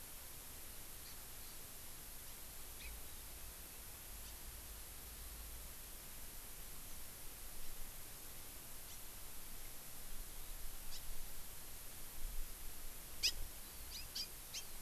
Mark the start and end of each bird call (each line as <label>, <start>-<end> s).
Hawaii Amakihi (Chlorodrepanis virens), 1.0-1.2 s
Hawaii Amakihi (Chlorodrepanis virens), 2.8-2.9 s
House Finch (Haemorhous mexicanus), 8.9-9.0 s
House Finch (Haemorhous mexicanus), 10.9-11.0 s
House Finch (Haemorhous mexicanus), 13.2-13.4 s
House Finch (Haemorhous mexicanus), 13.9-14.6 s